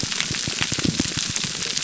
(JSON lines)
{"label": "biophony, pulse", "recorder": "SoundTrap 300"}